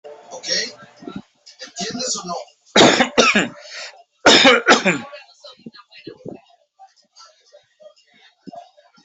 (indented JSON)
{
  "expert_labels": [
    {
      "quality": "ok",
      "cough_type": "wet",
      "dyspnea": false,
      "wheezing": false,
      "stridor": false,
      "choking": false,
      "congestion": false,
      "nothing": true,
      "diagnosis": "lower respiratory tract infection",
      "severity": "mild"
    }
  ]
}